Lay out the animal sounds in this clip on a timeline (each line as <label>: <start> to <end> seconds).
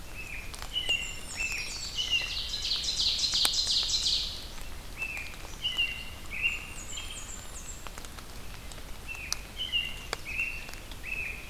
American Robin (Turdus migratorius): 0.0 to 2.3 seconds
Blackburnian Warbler (Setophaga fusca): 0.6 to 2.1 seconds
Black-throated Green Warbler (Setophaga virens): 0.7 to 2.2 seconds
Ovenbird (Seiurus aurocapilla): 1.6 to 4.5 seconds
American Robin (Turdus migratorius): 4.7 to 7.3 seconds
Blackburnian Warbler (Setophaga fusca): 6.3 to 7.9 seconds
American Robin (Turdus migratorius): 9.0 to 11.5 seconds